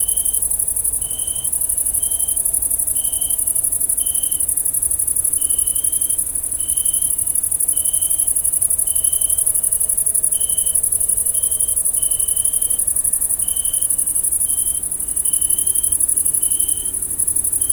Is it raining?
no